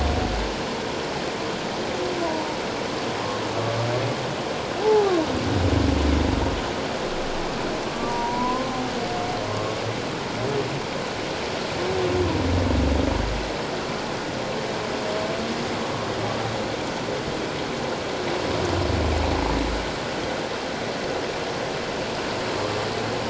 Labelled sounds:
4.8	5.1	humpback whale, 0.78 to 0.94 kHz
7.9	8.8	humpback whale, 0.88 to 1.2 kHz

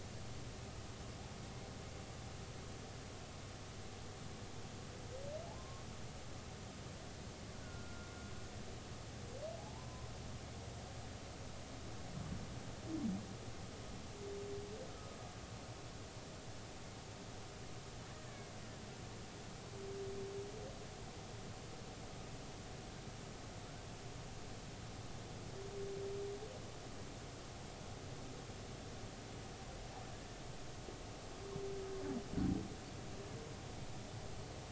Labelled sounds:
5.6	5.8	humpback whale, 0.99 to 1.1 kHz
7.6	8.1	killer whale, Bigg's (transient), 1.3 to 1.5 kHz
9.6	10.1	humpback whale, 0.80 to 1.1 kHz
14.9	15.2	humpback whale, 1.2 to 1.4 kHz
18.3	18.5	killer whale, Bigg's (transient), 2.1 to 2.3 kHz

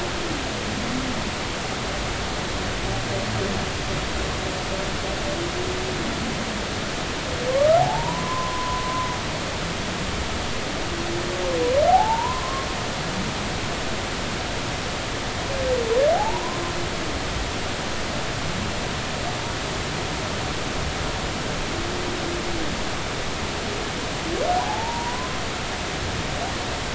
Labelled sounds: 7.5	8.8	humpback whale, 0.80 to 1.4 kHz
11.9	12.7	humpback whale, 0.80 to 1.2 kHz
16.1	16.6	humpback whale, 0.80 to 1.1 kHz
24.6	25.3	humpback whale, 0.80 to 1.1 kHz

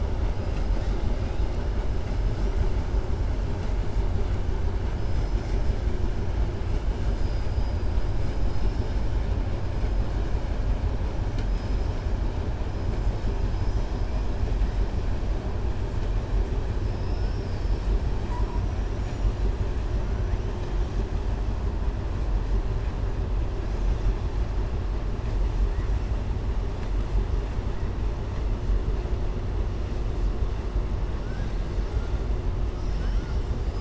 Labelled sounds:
16.9	17.9	killer whale, southern resident, 4.5 to 5.8 kHz
31.2	31.5	killer whale, southern resident, 1.1 to 2.4 kHz

